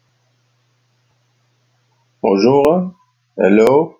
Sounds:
Cough